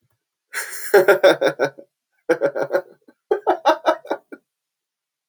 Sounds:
Laughter